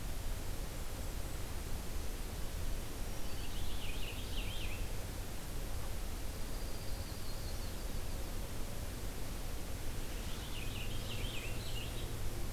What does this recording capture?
Black-throated Green Warbler, Purple Finch, Dark-eyed Junco, Yellow-rumped Warbler